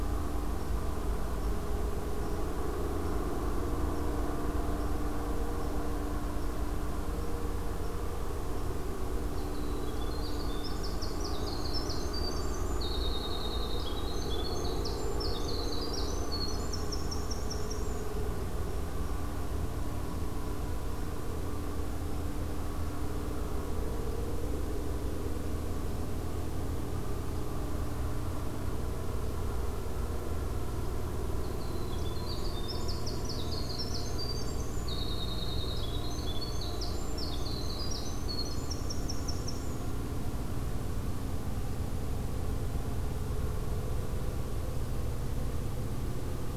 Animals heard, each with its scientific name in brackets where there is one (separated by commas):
Winter Wren (Troglodytes hiemalis), Red Squirrel (Tamiasciurus hudsonicus)